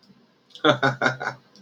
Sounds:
Laughter